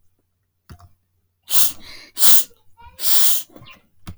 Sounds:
Sniff